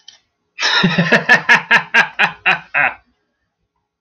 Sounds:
Laughter